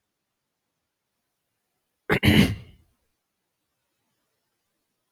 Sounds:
Throat clearing